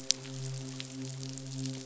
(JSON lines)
{"label": "biophony, midshipman", "recorder": "SoundTrap 500"}